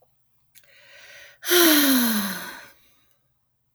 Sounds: Sigh